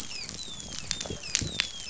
{"label": "biophony, dolphin", "recorder": "SoundTrap 500"}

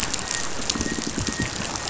{"label": "biophony, pulse", "recorder": "SoundTrap 500"}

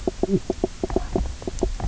{"label": "biophony, knock croak", "recorder": "SoundTrap 300"}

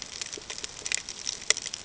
{"label": "ambient", "recorder": "HydroMoth"}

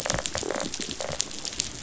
{"label": "biophony, rattle response", "recorder": "SoundTrap 500"}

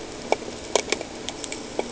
{"label": "ambient", "recorder": "HydroMoth"}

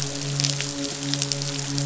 {"label": "biophony, midshipman", "recorder": "SoundTrap 500"}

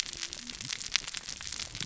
{"label": "biophony, cascading saw", "recorder": "SoundTrap 600 or HydroMoth"}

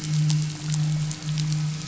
{"label": "anthrophony, boat engine", "recorder": "SoundTrap 500"}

